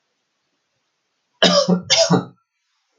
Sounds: Cough